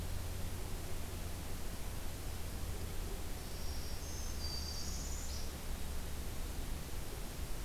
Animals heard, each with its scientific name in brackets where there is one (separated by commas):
Northern Parula (Setophaga americana), Black-throated Green Warbler (Setophaga virens)